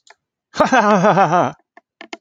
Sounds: Laughter